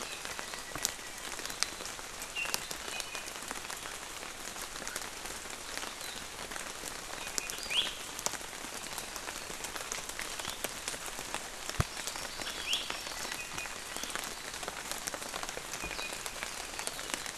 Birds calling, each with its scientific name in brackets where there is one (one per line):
Iiwi (Drepanis coccinea)
Hawaii Amakihi (Chlorodrepanis virens)
Apapane (Himatione sanguinea)